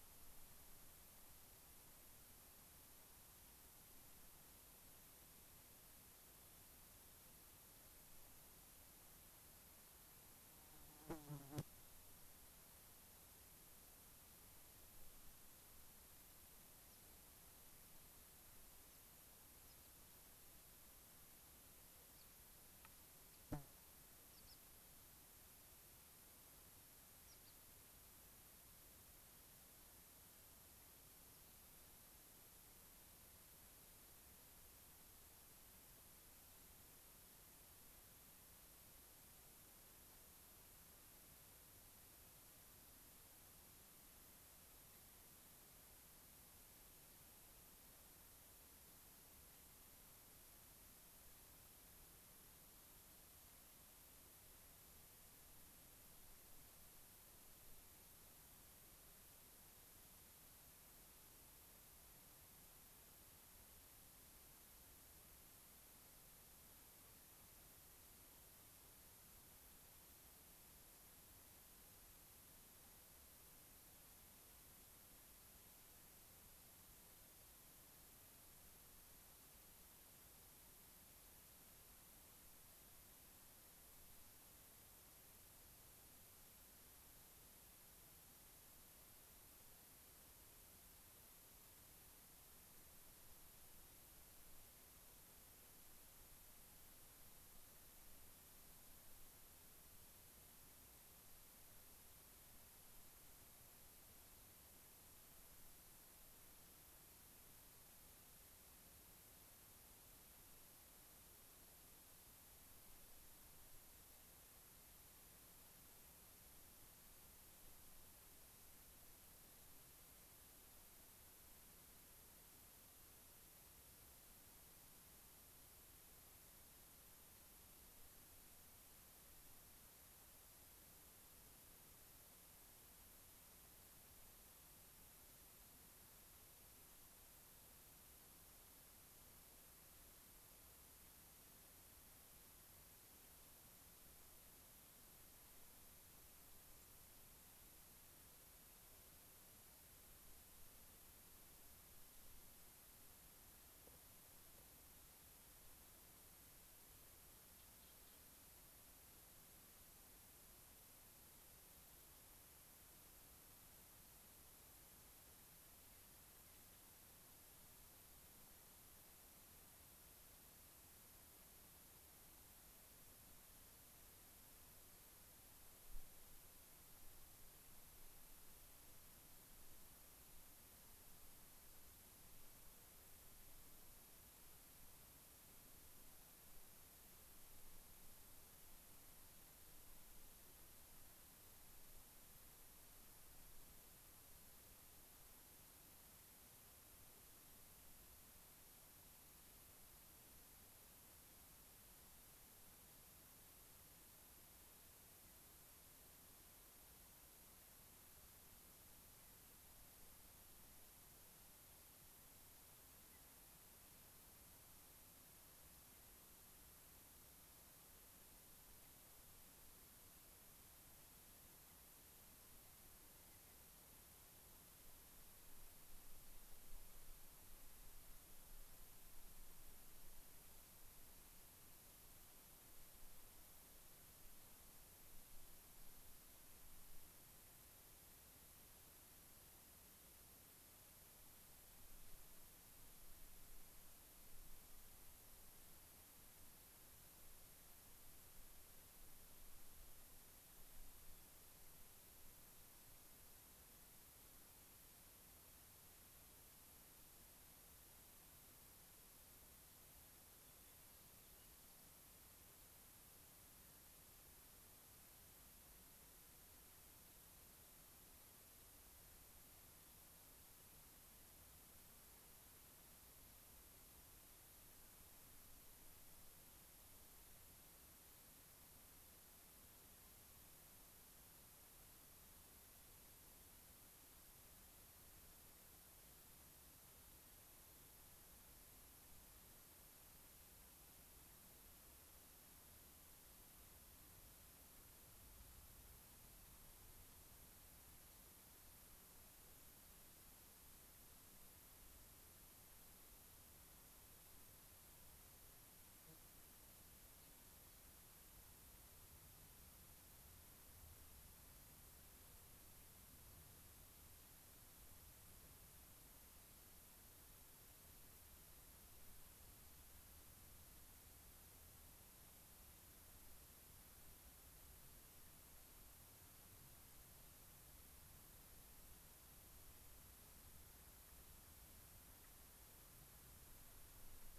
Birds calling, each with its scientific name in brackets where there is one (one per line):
White-crowned Sparrow (Zonotrichia leucophrys)
Mountain Chickadee (Poecile gambeli)